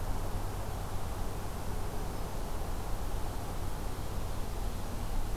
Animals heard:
forest ambience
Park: Acadia National Park